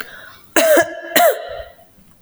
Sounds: Cough